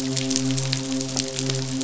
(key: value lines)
label: biophony, midshipman
recorder: SoundTrap 500